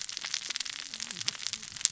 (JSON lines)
{"label": "biophony, cascading saw", "recorder": "SoundTrap 600 or HydroMoth"}